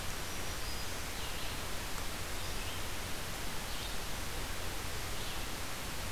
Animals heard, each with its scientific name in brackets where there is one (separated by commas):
Black-throated Green Warbler (Setophaga virens), Red-eyed Vireo (Vireo olivaceus)